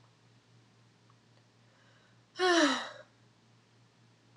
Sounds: Sigh